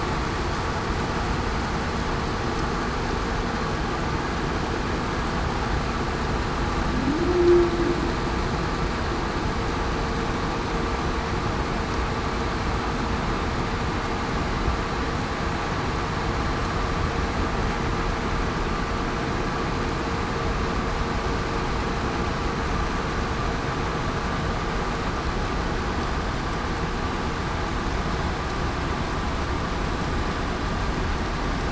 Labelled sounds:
7.3	7.7	humpback whale, 0.28 to 0.40 kHz

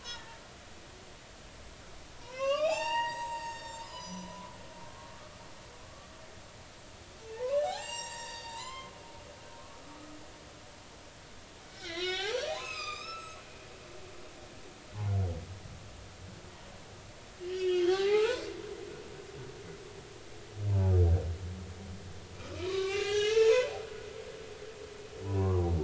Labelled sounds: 0.1	0.4	humpback whale, 1.7 to 2.0 kHz
2.2	4.4	humpback whale, 0.80 to 8.0 kHz
4.8	5.3	humpback whale, 0.96 to 1.4 kHz
7.2	9.3	humpback whale, 0.80 to 7.7 kHz
11.7	13.4	humpback whale, 0.80 to 6.7 kHz
17.4	18.5	humpback whale, 0.80 to 4.9 kHz
22.6	24.3	humpback whale, 0.80 to 4.6 kHz
25.2	25.6	humpback whale, 0.80 to 1.2 kHz

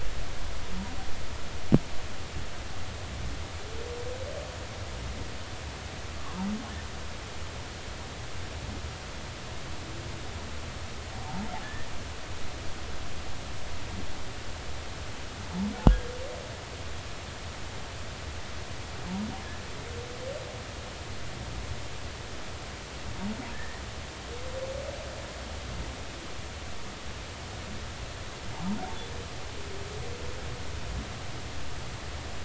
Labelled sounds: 11.2	11.9	humpback whale, 0.80 to 1.9 kHz
23.5	23.8	humpback whale, 1.6 to 2.0 kHz

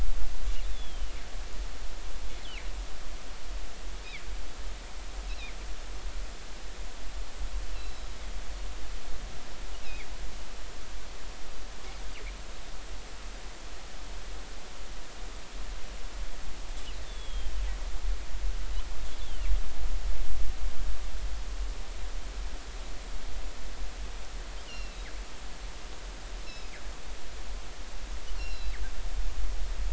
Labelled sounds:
0.7	1.1	killer whale, northern resident, G clan, 2.8 to 3.6 kHz
5.3	5.5	killer whale, northern resident, G clan, 2.0 to 2.8 kHz
7.7	8.1	killer whale, northern resident, G clan, 3.8 to 4.2 kHz
9.8	10.1	killer whale, northern resident, G clan, 2.1 to 2.8 kHz
17.1	17.5	killer whale, northern resident, G clan, 3.1 to 3.6 kHz
19.2	19.5	killer whale, northern resident, G clan, 2.6 to 3.6 kHz
24.7	25.1	killer whale, northern resident, G clan, 2.6 to 5.7 kHz
26.4	26.7	killer whale, northern resident, G clan, 2.5 to 5.4 kHz
28.4	28.7	killer whale, northern resident, G clan, 2.6 to 5.6 kHz

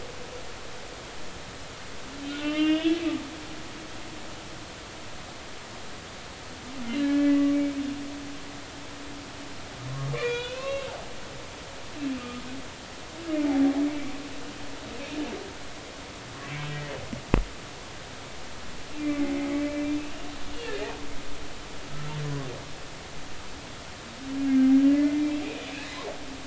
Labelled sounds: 2.4	3.0	humpback whale, 1.2 to 3.7 kHz
7.0	7.5	humpback whale, 1.6 to 2.0 kHz
10.1	10.9	humpback whale, 0.93 to 4.0 kHz
13.3	14.1	humpback whale, 0.80 to 2.5 kHz
19.0	20.0	humpback whale, 2.0 to 2.5 kHz
20.6	21.0	humpback whale, 1.6 to 2.6 kHz
24.9	25.3	humpback whale, 2.0 to 2.1 kHz

